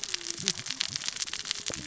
{"label": "biophony, cascading saw", "recorder": "SoundTrap 600 or HydroMoth"}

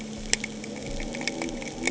{"label": "anthrophony, boat engine", "recorder": "HydroMoth"}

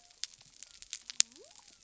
{"label": "biophony", "recorder": "SoundTrap 300"}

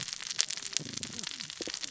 {"label": "biophony, cascading saw", "recorder": "SoundTrap 600 or HydroMoth"}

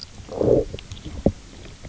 {"label": "biophony, low growl", "recorder": "SoundTrap 300"}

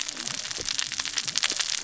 {"label": "biophony, cascading saw", "recorder": "SoundTrap 600 or HydroMoth"}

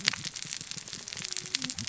{"label": "biophony, cascading saw", "recorder": "SoundTrap 600 or HydroMoth"}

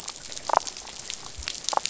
{"label": "biophony, damselfish", "recorder": "SoundTrap 500"}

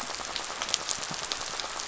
{"label": "biophony, rattle", "recorder": "SoundTrap 500"}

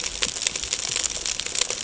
{"label": "ambient", "recorder": "HydroMoth"}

